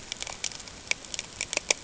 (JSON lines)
{"label": "ambient", "recorder": "HydroMoth"}